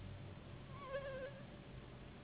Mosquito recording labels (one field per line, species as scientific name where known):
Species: Anopheles gambiae s.s.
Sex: female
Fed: unfed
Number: one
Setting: insect culture